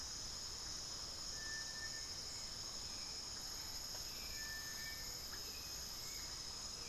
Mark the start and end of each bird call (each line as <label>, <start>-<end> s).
Hauxwell's Thrush (Turdus hauxwelli), 0.0-6.9 s